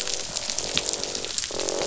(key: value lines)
label: biophony, croak
recorder: SoundTrap 500